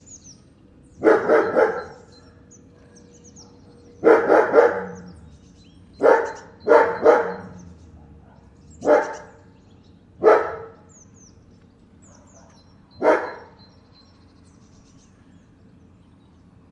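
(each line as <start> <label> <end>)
0.9 A dog barks. 2.1
3.9 A dog barks. 5.1
6.0 A dog barks. 7.9
8.7 A dog barks. 9.2
10.0 A dog barks. 10.8
12.9 A dog barks. 13.6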